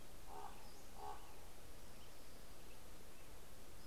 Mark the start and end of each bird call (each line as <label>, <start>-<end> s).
American Robin (Turdus migratorius), 0.0-3.9 s
Common Raven (Corvus corax), 0.0-3.9 s
Pacific-slope Flycatcher (Empidonax difficilis), 0.6-1.5 s
Orange-crowned Warbler (Leiothlypis celata), 1.5-2.9 s